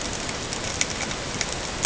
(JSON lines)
{"label": "ambient", "recorder": "HydroMoth"}